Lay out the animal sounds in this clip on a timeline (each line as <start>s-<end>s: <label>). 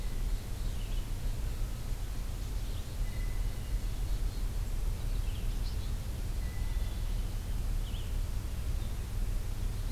0.0s-9.9s: Red-eyed Vireo (Vireo olivaceus)
3.0s-3.9s: Blue Jay (Cyanocitta cristata)
6.3s-7.0s: Blue Jay (Cyanocitta cristata)
6.6s-7.6s: Black-capped Chickadee (Poecile atricapillus)